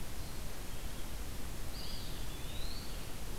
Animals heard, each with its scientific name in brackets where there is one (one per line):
Eastern Wood-Pewee (Contopus virens)
Red-eyed Vireo (Vireo olivaceus)